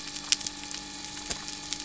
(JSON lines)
{"label": "anthrophony, boat engine", "recorder": "SoundTrap 300"}